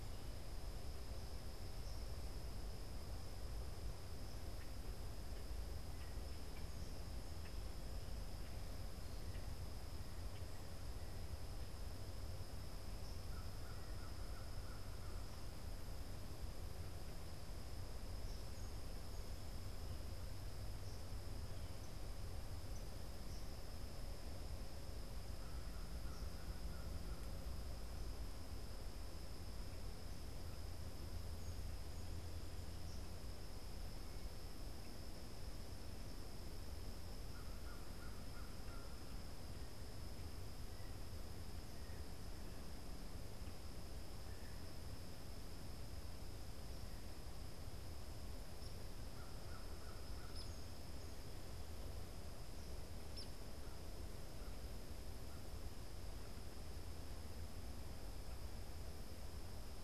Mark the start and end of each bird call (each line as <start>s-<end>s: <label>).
4.5s-12.3s: Common Grackle (Quiscalus quiscula)
13.0s-15.4s: American Crow (Corvus brachyrhynchos)
25.0s-27.5s: American Crow (Corvus brachyrhynchos)
37.1s-39.1s: American Crow (Corvus brachyrhynchos)
48.2s-53.6s: Hairy Woodpecker (Dryobates villosus)
48.8s-50.4s: American Crow (Corvus brachyrhynchos)